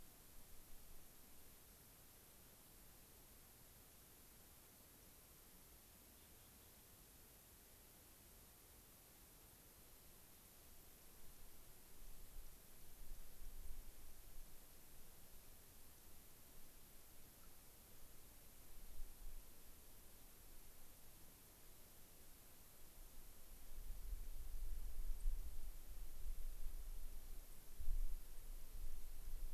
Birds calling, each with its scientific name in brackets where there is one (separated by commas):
White-crowned Sparrow (Zonotrichia leucophrys)